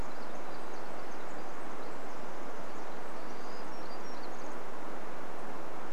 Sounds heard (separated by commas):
Pacific Wren song, Townsend's Warbler call, Townsend's Warbler song